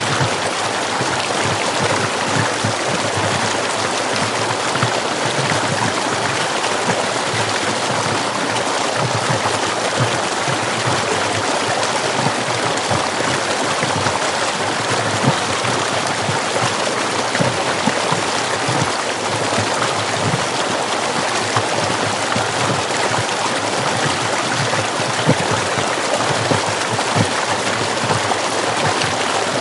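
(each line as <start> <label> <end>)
0.0 Flowing water is splashing loudly. 29.6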